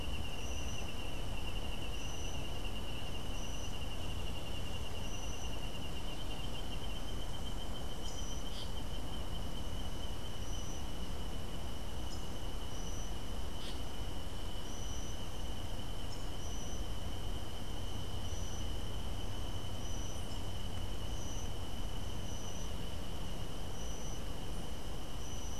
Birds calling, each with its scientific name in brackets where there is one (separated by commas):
Masked Tityra (Tityra semifasciata)